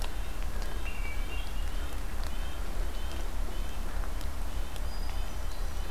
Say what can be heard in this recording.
Red-breasted Nuthatch, Hermit Thrush